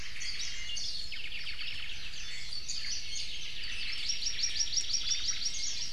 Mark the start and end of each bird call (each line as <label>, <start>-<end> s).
Omao (Myadestes obscurus), 0.0-0.7 s
Warbling White-eye (Zosterops japonicus), 0.1-1.1 s
Iiwi (Drepanis coccinea), 0.4-0.9 s
Omao (Myadestes obscurus), 1.0-2.6 s
Warbling White-eye (Zosterops japonicus), 2.2-3.3 s
Iiwi (Drepanis coccinea), 2.7-4.0 s
Omao (Myadestes obscurus), 3.5-5.5 s
Hawaii Amakihi (Chlorodrepanis virens), 3.7-5.9 s
Warbling White-eye (Zosterops japonicus), 5.4-5.8 s